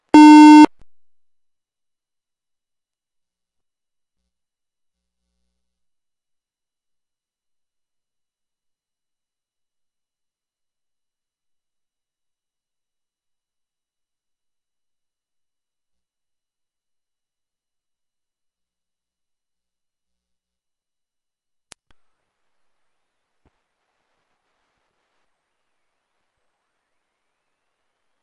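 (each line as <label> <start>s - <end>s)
A short, steady electronic beep indicating an error. 0.1s - 0.7s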